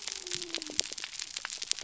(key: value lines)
label: biophony
recorder: SoundTrap 300